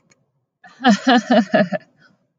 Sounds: Laughter